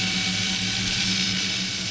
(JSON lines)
{"label": "anthrophony, boat engine", "recorder": "SoundTrap 500"}